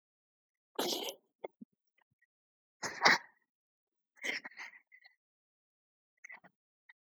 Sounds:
Throat clearing